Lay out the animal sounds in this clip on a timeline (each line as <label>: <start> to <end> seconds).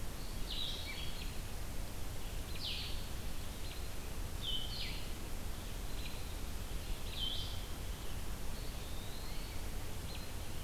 Blue-headed Vireo (Vireo solitarius): 0.0 to 7.5 seconds
Eastern Wood-Pewee (Contopus virens): 0.1 to 1.2 seconds
American Robin (Turdus migratorius): 2.4 to 10.6 seconds
Eastern Wood-Pewee (Contopus virens): 8.5 to 9.6 seconds